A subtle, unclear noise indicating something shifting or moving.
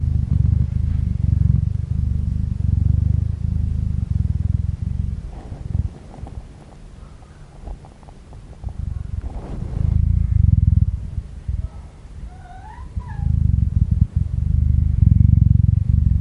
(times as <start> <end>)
6.0 8.8